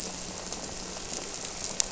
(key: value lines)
label: anthrophony, boat engine
recorder: SoundTrap 300